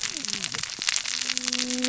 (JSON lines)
{"label": "biophony, cascading saw", "recorder": "SoundTrap 600 or HydroMoth"}